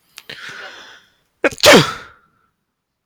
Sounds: Sneeze